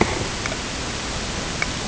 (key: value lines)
label: ambient
recorder: HydroMoth